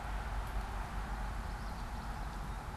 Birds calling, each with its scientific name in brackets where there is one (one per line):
Common Yellowthroat (Geothlypis trichas)